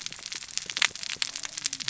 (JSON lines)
{"label": "biophony, cascading saw", "recorder": "SoundTrap 600 or HydroMoth"}